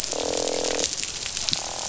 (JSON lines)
{"label": "biophony, croak", "recorder": "SoundTrap 500"}